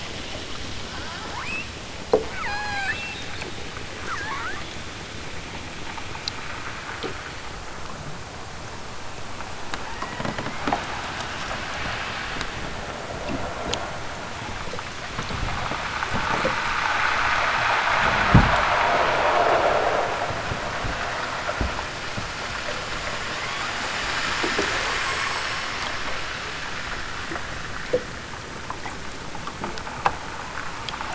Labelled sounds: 0.8	1.7	killer whale, southern Alaska resident, 0.64 to 8.0 kHz
2.1	3.3	killer whale, southern Alaska resident, 0.23 to 8.0 kHz
3.9	4.8	killer whale, southern Alaska resident, 0.60 to 4.9 kHz
9.8	10.6	killer whale, southern Alaska resident, 1.1 to 4.6 kHz

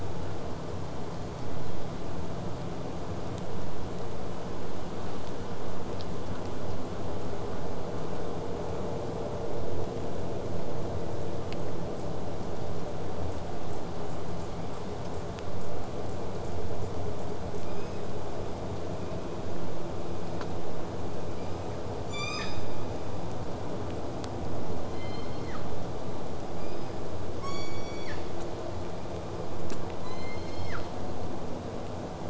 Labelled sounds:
1.1	1.9	killer whale, southern resident, 2.9 to 4.5 kHz
13.7	17.7	killer whale, southern resident, 3.7 to 8.0 kHz
18.9	19.4	killer whale, southern resident, 2.2 to 3.9 kHz
27.4	28.3	killer whale, southern resident, 0.75 to 8.0 kHz
30.0	30.9	killer whale, southern resident, 0.99 to 8.0 kHz

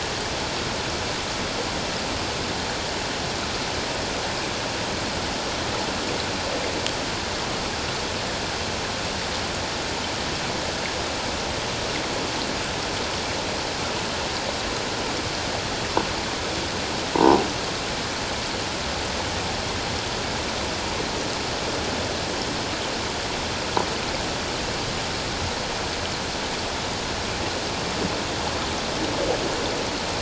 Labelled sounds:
17.1	17.4	croaking sound likely from a nearby submerged object, 0.78 to 1.0 kHz

